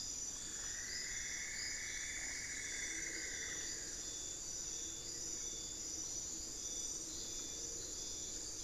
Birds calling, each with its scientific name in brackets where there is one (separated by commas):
Cinnamon-throated Woodcreeper (Dendrexetastes rufigula)